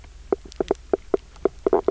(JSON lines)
{"label": "biophony, knock croak", "recorder": "SoundTrap 300"}